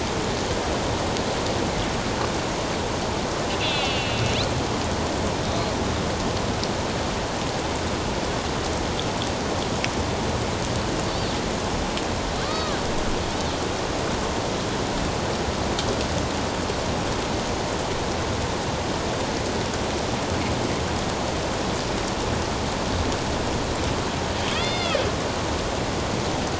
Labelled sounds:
3.6	4.3	killer whale, northern resident, A clan, AB subclan, 2.1 to 3.7 kHz
12.4	12.8	killer whale, northern resident, A clan, AB subclan, 1.1 to 1.3 kHz
24.5	25.0	killer whale, northern resident, A clan, AB subclan, 1.7 to 5.1 kHz

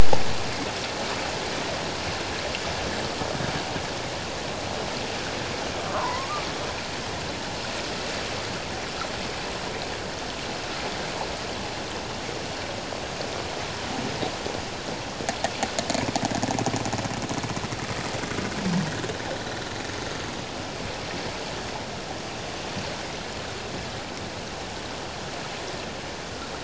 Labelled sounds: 5.9	6.4	killer whale, 0.84 to 1.5 kHz

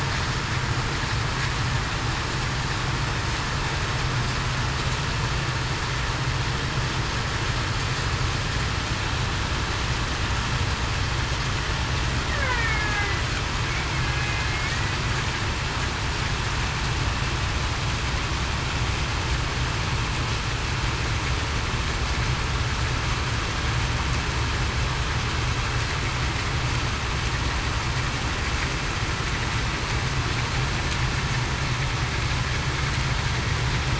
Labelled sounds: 12.4	13.1	killer whale, Bigg's (transient), 1.6 to 2.4 kHz
14.0	14.3	killer whale, Bigg's (transient), 1.6 to 1.7 kHz

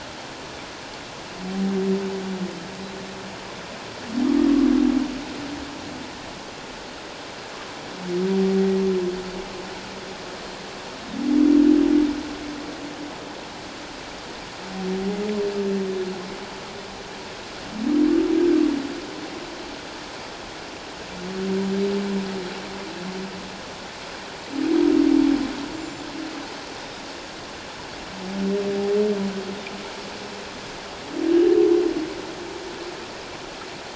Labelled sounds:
25.7	27.0	Pacific white-sided dolphin, 3.5 to 7.4 kHz

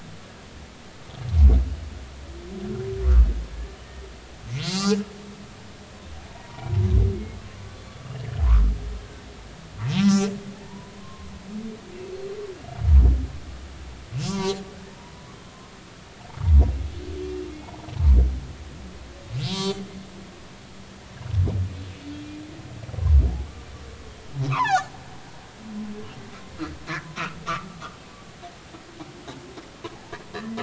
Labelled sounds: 4.6	5.1	humpback whale, 0.90 to 5.2 kHz
6.3	6.7	humpback whale, 0.86 to 0.99 kHz
10.0	11.3	humpback whale, 0.83 to 2.6 kHz
14.3	14.6	humpback whale, 0.90 to 6.2 kHz
19.5	19.8	humpback whale, 0.90 to 4.9 kHz
24.5	24.9	humpback whale, 0.80 to 2.1 kHz
29.9	30.2	humpback whale, 0.80 to 1.0 kHz

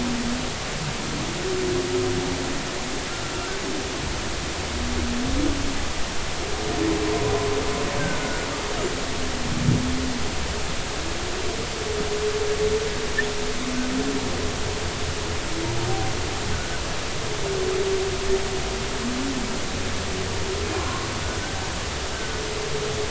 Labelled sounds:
8.2	8.5	humpback whale, 1.4 to 1.5 kHz
16.5	16.8	humpback whale, 1.2 to 1.6 kHz
20.8	21.1	humpback whale, 0.96 to 1.2 kHz

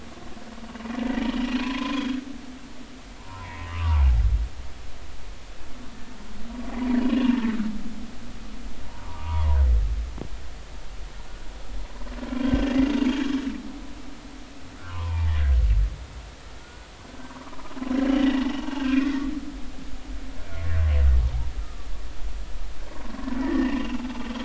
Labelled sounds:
1.0	2.2	humpback whale, 0.96 to 3.5 kHz
3.2	4.2	humpback whale, 0.80 to 2.3 kHz
7.0	7.2	humpback whale, 2.8 to 2.9 kHz
9.0	9.6	humpback whale, 0.80 to 1.3 kHz
12.4	12.9	humpback whale, 1.5 to 3.4 kHz
14.8	15.5	humpback whale, 0.83 to 2.6 kHz
16.6	16.9	humpback whale, 1.4 to 1.5 kHz
18.0	18.5	humpback whale, 2.7 to 3.1 kHz
21.6	21.9	humpback whale, 1.1 to 1.4 kHz
23.4	24.0	humpback whale, 1.7 to 2.9 kHz

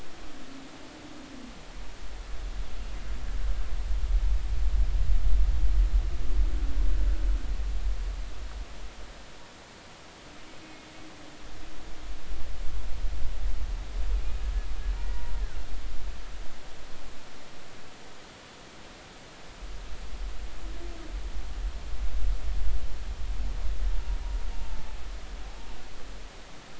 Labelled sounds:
10.6	10.9	humpback whale, 2.4 to 2.6 kHz
24.5	25.0	humpback whale, 0.83 to 0.96 kHz

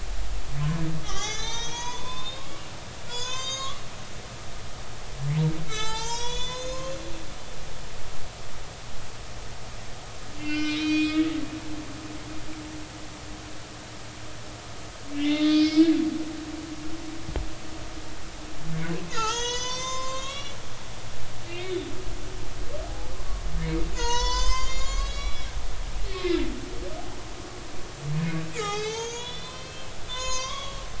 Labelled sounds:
1.0	2.7	humpback whale, 0.80 to 6.9 kHz
3.1	4.7	humpback whale, 0.93 to 7.1 kHz
5.7	7.0	humpback whale, 0.83 to 7.9 kHz
10.4	11.3	humpback whale, 1.4 to 5.7 kHz
15.1	15.9	humpback whale, 1.2 to 5.3 kHz
19.1	21.9	humpback whale, 0.80 to 7.8 kHz
22.8	23.1	humpback whale, 0.80 to 0.90 kHz
23.9	25.5	humpback whale, 0.86 to 7.8 kHz
26.1	26.4	humpback whale, 2.3 to 2.6 kHz
28.5	30.8	humpback whale, 0.80 to 6.9 kHz

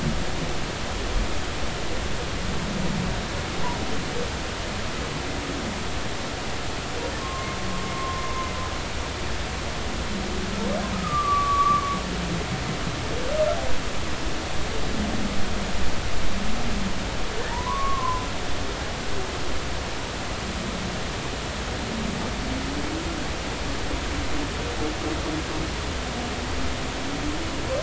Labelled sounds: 7.2	8.5	humpback whale, 0.99 to 1.1 kHz
10.9	12.0	humpback whale, 1.1 to 1.3 kHz
17.4	18.3	humpback whale, 0.86 to 2.0 kHz

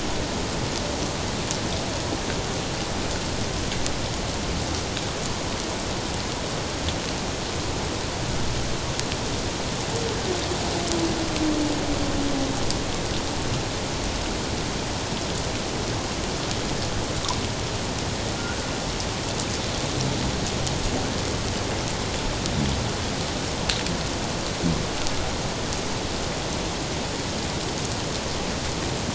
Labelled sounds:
18.4	18.6	humpback whale, 1.3 to 1.7 kHz

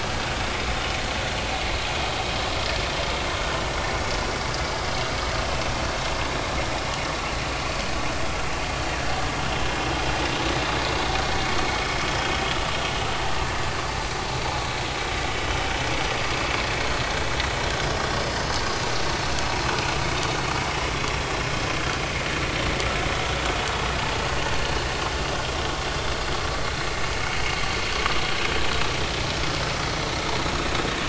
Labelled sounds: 15.6	15.8	vessel noise, 5.2 to 5.3 kHz
16.9	17.1	vessel noise, 4.3 to 4.5 kHz
27.5	27.8	vessel noise, 4.3 to 4.4 kHz

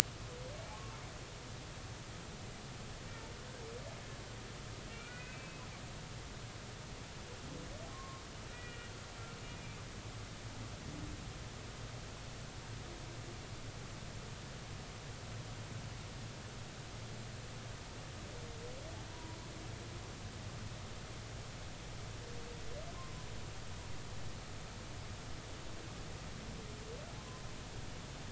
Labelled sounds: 0.7	1.0	humpback whale, 1.0 to 1.2 kHz
4.9	5.6	humpback whale, 1.9 to 2.7 kHz
7.9	8.9	humpback whale, 1.0 to 2.5 kHz
9.4	9.8	humpback whale, 2.3 to 2.5 kHz
19.1	19.4	humpback whale, 0.90 to 1.0 kHz
23.0	23.3	humpback whale, 0.96 to 1.2 kHz
27.2	27.4	humpback whale, 0.99 to 1.1 kHz

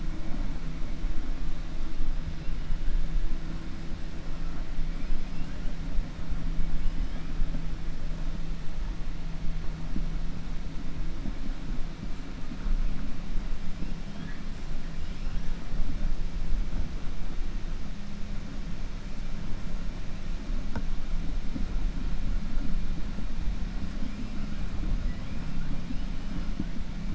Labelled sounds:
14.0	14.4	killer whale, 1.2 to 3.5 kHz
25.0	25.4	killer whale, 1.9 to 3.4 kHz

